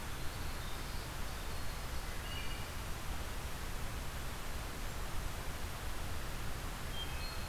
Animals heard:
Winter Wren (Troglodytes hiemalis), Wood Thrush (Hylocichla mustelina)

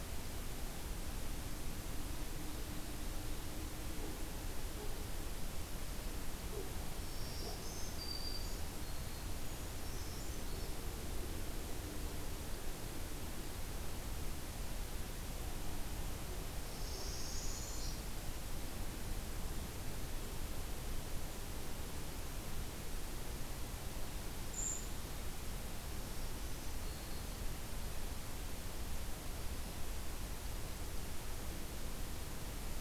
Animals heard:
Black-throated Green Warbler (Setophaga virens), Brown Creeper (Certhia americana), Northern Parula (Setophaga americana)

